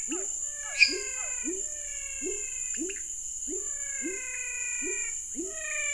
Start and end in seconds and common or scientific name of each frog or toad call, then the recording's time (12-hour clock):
0.0	1.4	Physalaemus cuvieri
0.0	5.9	pepper frog
0.0	5.9	menwig frog
0.7	1.3	lesser tree frog
7:30pm